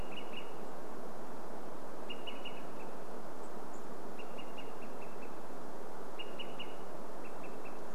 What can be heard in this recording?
Olive-sided Flycatcher call, Chestnut-backed Chickadee call